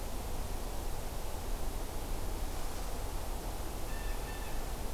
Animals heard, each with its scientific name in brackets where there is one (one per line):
Blue Jay (Cyanocitta cristata)